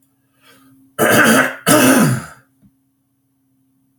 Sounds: Throat clearing